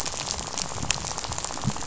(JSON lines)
{"label": "biophony, rattle", "recorder": "SoundTrap 500"}